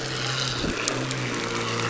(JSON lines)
{"label": "anthrophony, boat engine", "recorder": "SoundTrap 300"}